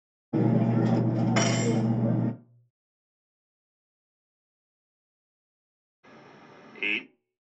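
At 0.3 seconds, cutlery can be heard. Then, at 6.8 seconds, a voice says "eight."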